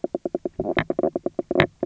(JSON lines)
{"label": "biophony, knock croak", "recorder": "SoundTrap 300"}